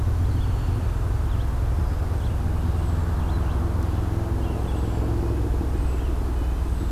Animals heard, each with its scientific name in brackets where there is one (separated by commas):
Red-breasted Nuthatch (Sitta canadensis), Red-eyed Vireo (Vireo olivaceus), Black-throated Green Warbler (Setophaga virens)